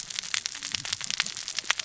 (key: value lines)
label: biophony, cascading saw
recorder: SoundTrap 600 or HydroMoth